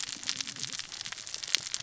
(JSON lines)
{"label": "biophony, cascading saw", "recorder": "SoundTrap 600 or HydroMoth"}